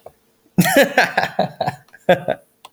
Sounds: Laughter